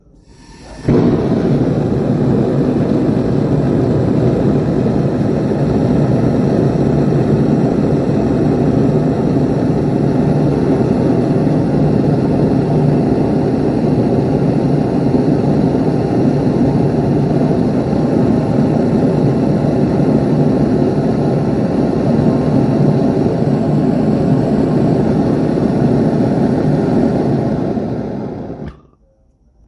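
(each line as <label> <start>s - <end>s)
Gas ignites on a stove, burns for some time, and then turns off. 0.0s - 29.7s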